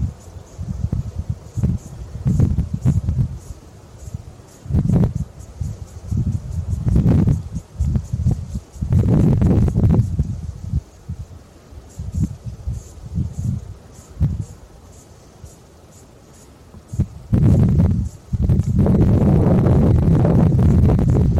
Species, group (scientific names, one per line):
Tettigettalna mariae
Cicadidae